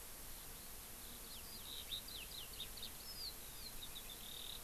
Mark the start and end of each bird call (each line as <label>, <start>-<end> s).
Eurasian Skylark (Alauda arvensis), 0.0-4.6 s